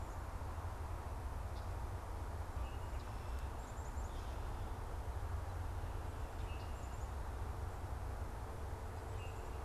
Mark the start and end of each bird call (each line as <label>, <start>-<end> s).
Common Grackle (Quiscalus quiscula), 2.5-9.6 s
Black-capped Chickadee (Poecile atricapillus), 3.4-7.4 s